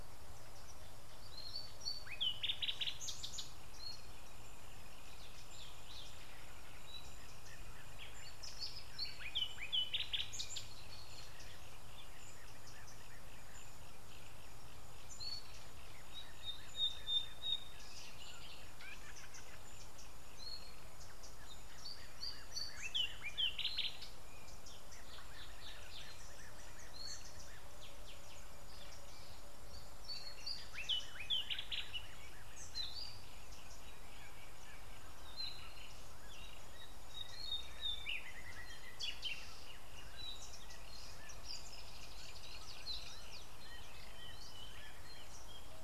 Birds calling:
Thrush Nightingale (Luscinia luscinia)

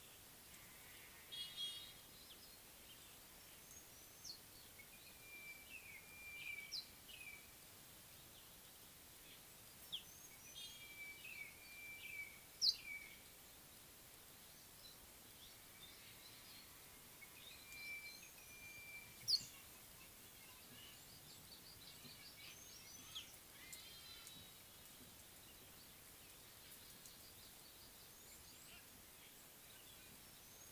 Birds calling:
Scarlet-chested Sunbird (Chalcomitra senegalensis), Spotted Morning-Thrush (Cichladusa guttata), Sulphur-breasted Bushshrike (Telophorus sulfureopectus)

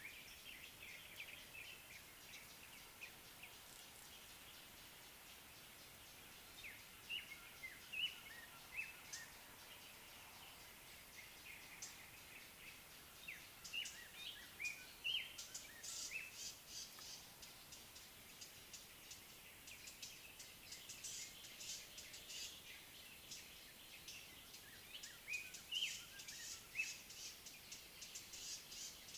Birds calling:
Cape Robin-Chat (Cossypha caffra)

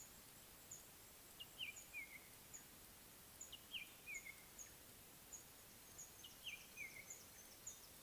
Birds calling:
Red-backed Scrub-Robin (Cercotrichas leucophrys), Mouse-colored Penduline-Tit (Anthoscopus musculus)

